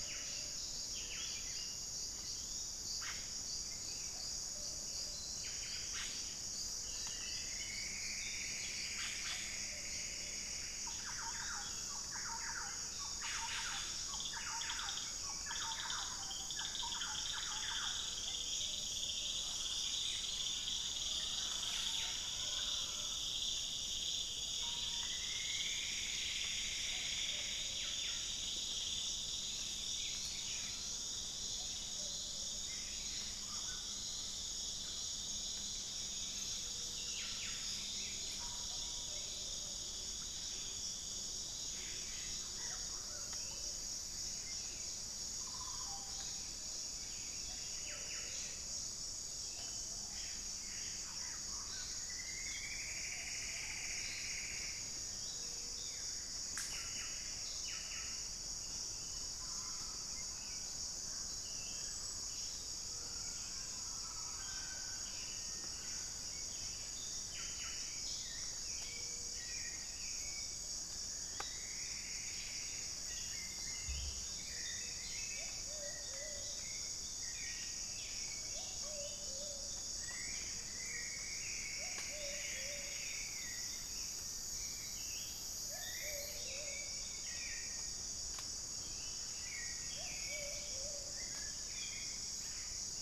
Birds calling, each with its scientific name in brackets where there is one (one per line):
Hauxwell's Thrush (Turdus hauxwelli)
Plumbeous Pigeon (Patagioenas plumbea)
Ruddy Quail-Dove (Geotrygon montana)
Gray-fronted Dove (Leptotila rufaxilla)
Russet-backed Oropendola (Psarocolius angustifrons)
Thrush-like Wren (Campylorhynchus turdinus)
Plumbeous Antbird (Myrmelastes hyperythrus)
Gilded Barbet (Capito auratus)
Cinereous Tinamou (Crypturellus cinereus)
Yellow-rumped Cacique (Cacicus cela)